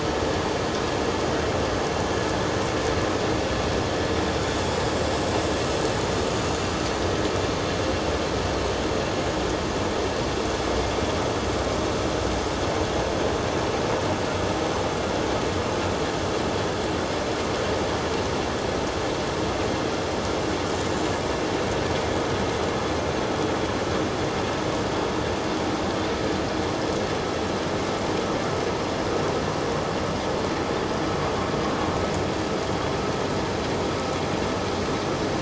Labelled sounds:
4.4	4.6	vessel noise, 6.8 to 6.9 kHz

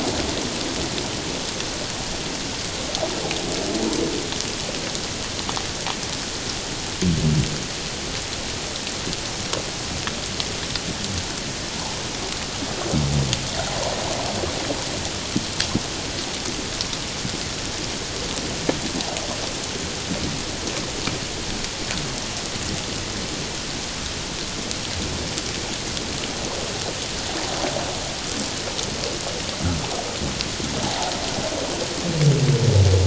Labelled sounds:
11.7	12.0	water noise, 0.78 to 1.1 kHz

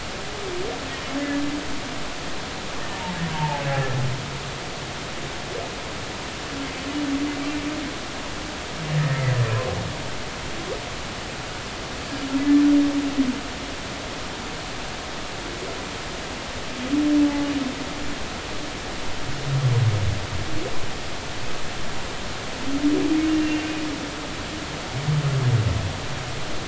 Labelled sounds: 3.3	4.0	humpback whale, 0.80 to 1.9 kHz
17.2	17.5	humpback whale, 0.80 to 0.90 kHz
23.4	23.7	humpback whale, 2.7 to 2.8 kHz

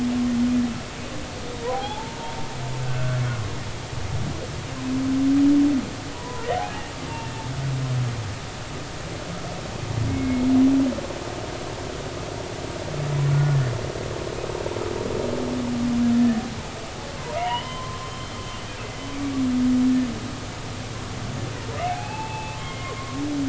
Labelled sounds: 1.5	2.4	humpback whale, 0.80 to 1.1 kHz
2.8	3.1	humpback whale, 1.3 to 1.6 kHz
6.1	7.4	humpback whale, 0.86 to 2.8 kHz
10.1	10.4	humpback whale, 2.1 to 2.2 kHz
13.3	13.6	humpback whale, 1.4 to 1.5 kHz
16.1	16.4	humpback whale, 1.7 to 1.9 kHz
17.4	18.3	humpback whale, 0.90 to 3.2 kHz
21.9	23.2	humpback whale, 0.80 to 2.7 kHz

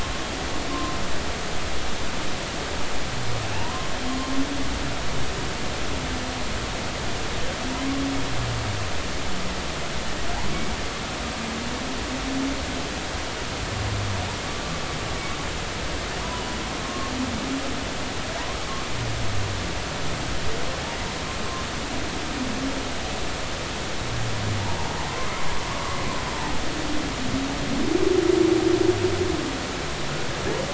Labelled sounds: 3.5	3.9	humpback whale, 0.83 to 1.1 kHz
16.8	17.1	humpback whale, 1.0 to 1.1 kHz
25.1	25.3	humpback whale, 0.96 to 1.3 kHz
25.7	26.0	humpback whale, 1.1 to 1.2 kHz

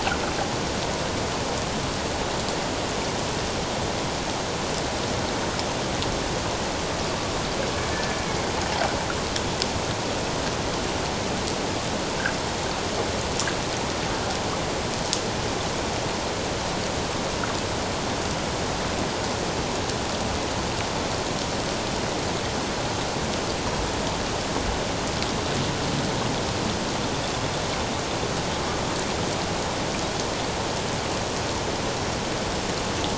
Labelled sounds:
7.9	8.2	killer whale, Bigg's (transient), 1.7 to 1.8 kHz

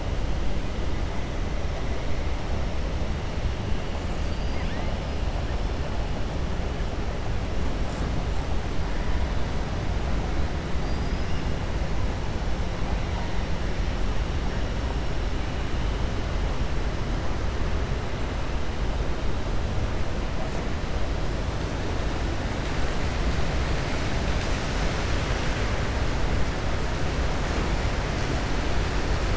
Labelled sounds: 4.1	4.9	killer whale, 1.0 to 5.3 kHz
10.7	11.5	killer whale, 4.7 to 5.8 kHz

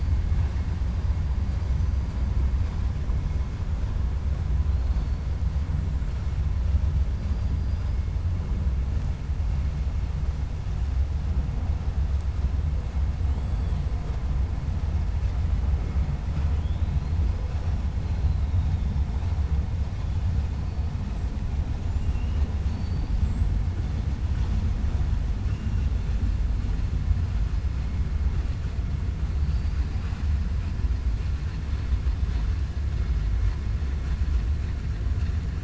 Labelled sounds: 7.2	7.9	killer whale, 4.0 to 5.1 kHz
16.2	16.8	killer whale, 0.61 to 3.9 kHz
22.0	23.1	killer whale, 2.3 to 5.3 kHz
29.4	30.2	killer whale, 0.51 to 5.3 kHz

